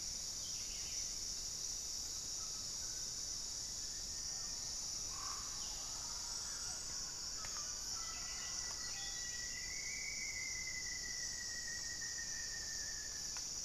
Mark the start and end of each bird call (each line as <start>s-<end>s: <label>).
0.3s-1.3s: Buff-throated Saltator (Saltator maximus)
2.0s-9.4s: Mealy Parrot (Amazona farinosa)
7.3s-9.8s: Buff-throated Saltator (Saltator maximus)
7.5s-13.6s: Rufous-fronted Antthrush (Formicarius rufifrons)